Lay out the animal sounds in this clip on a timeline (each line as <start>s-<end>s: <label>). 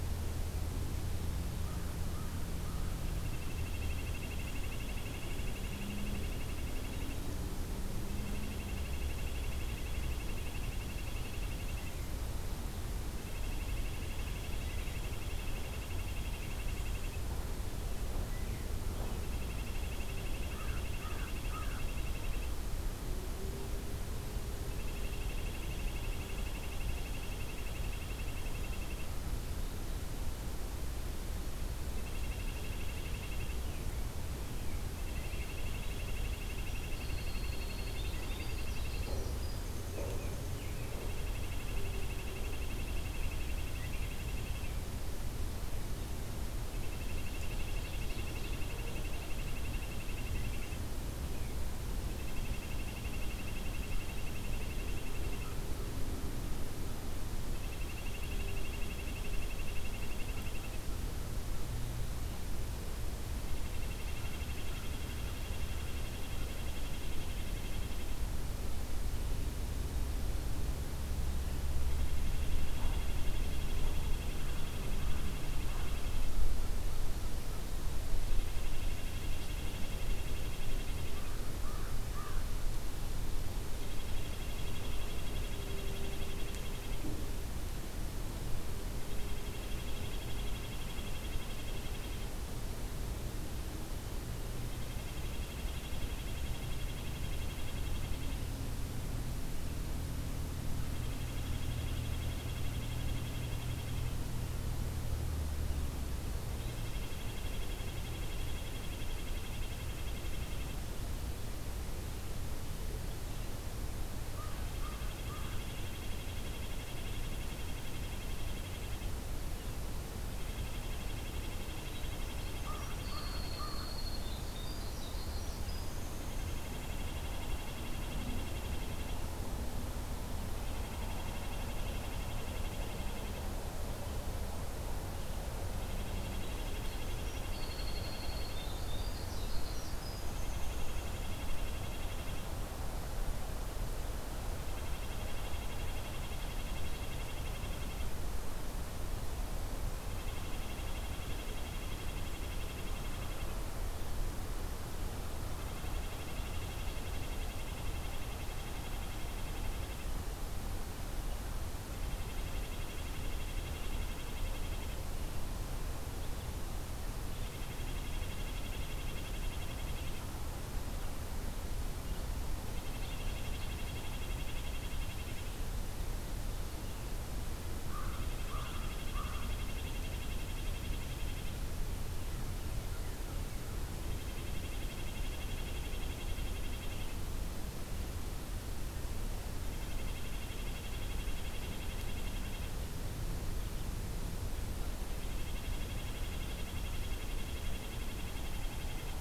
1.5s-3.0s: American Crow (Corvus brachyrhynchos)
3.3s-7.3s: Red-breasted Nuthatch (Sitta canadensis)
8.1s-12.1s: Red-breasted Nuthatch (Sitta canadensis)
13.2s-17.2s: Red-breasted Nuthatch (Sitta canadensis)
19.1s-22.6s: Red-breasted Nuthatch (Sitta canadensis)
20.5s-21.9s: American Crow (Corvus brachyrhynchos)
24.8s-29.1s: Red-breasted Nuthatch (Sitta canadensis)
32.0s-33.6s: Red-breasted Nuthatch (Sitta canadensis)
35.0s-39.2s: Red-breasted Nuthatch (Sitta canadensis)
36.5s-40.5s: Winter Wren (Troglodytes hiemalis)
39.8s-41.3s: American Robin (Turdus migratorius)
40.8s-44.8s: Red-breasted Nuthatch (Sitta canadensis)
46.9s-50.8s: Red-breasted Nuthatch (Sitta canadensis)
47.1s-49.1s: Ovenbird (Seiurus aurocapilla)
52.1s-55.7s: Red-breasted Nuthatch (Sitta canadensis)
57.6s-60.8s: Red-breasted Nuthatch (Sitta canadensis)
63.5s-68.2s: Red-breasted Nuthatch (Sitta canadensis)
71.9s-76.3s: Red-breasted Nuthatch (Sitta canadensis)
74.1s-76.0s: American Crow (Corvus brachyrhynchos)
78.2s-81.2s: Red-breasted Nuthatch (Sitta canadensis)
81.0s-82.5s: American Crow (Corvus brachyrhynchos)
83.8s-87.0s: Red-breasted Nuthatch (Sitta canadensis)
89.1s-92.4s: Red-breasted Nuthatch (Sitta canadensis)
94.6s-98.4s: Red-breasted Nuthatch (Sitta canadensis)
100.9s-104.2s: Red-breasted Nuthatch (Sitta canadensis)
106.5s-110.8s: Red-breasted Nuthatch (Sitta canadensis)
114.2s-115.6s: American Crow (Corvus brachyrhynchos)
114.6s-119.1s: Red-breasted Nuthatch (Sitta canadensis)
120.4s-123.6s: Red-breasted Nuthatch (Sitta canadensis)
122.2s-126.2s: Winter Wren (Troglodytes hiemalis)
122.6s-123.9s: American Crow (Corvus brachyrhynchos)
126.2s-129.3s: Red-breasted Nuthatch (Sitta canadensis)
130.6s-133.4s: Red-breasted Nuthatch (Sitta canadensis)
135.7s-138.7s: Red-breasted Nuthatch (Sitta canadensis)
137.1s-141.3s: Winter Wren (Troglodytes hiemalis)
140.3s-142.5s: Red-breasted Nuthatch (Sitta canadensis)
144.7s-148.1s: Red-breasted Nuthatch (Sitta canadensis)
150.1s-153.5s: Red-breasted Nuthatch (Sitta canadensis)
155.6s-160.1s: Red-breasted Nuthatch (Sitta canadensis)
162.2s-165.0s: Red-breasted Nuthatch (Sitta canadensis)
167.3s-170.2s: Red-breasted Nuthatch (Sitta canadensis)
172.7s-175.6s: Red-breasted Nuthatch (Sitta canadensis)
177.7s-179.6s: American Crow (Corvus brachyrhynchos)
178.1s-181.7s: Red-breasted Nuthatch (Sitta canadensis)
184.0s-187.3s: Red-breasted Nuthatch (Sitta canadensis)
189.7s-192.7s: Red-breasted Nuthatch (Sitta canadensis)
195.1s-199.2s: Red-breasted Nuthatch (Sitta canadensis)